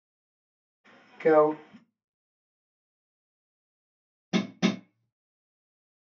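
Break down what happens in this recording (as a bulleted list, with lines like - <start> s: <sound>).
- 1.2 s: someone says "go"
- 4.3 s: the sound of a hammer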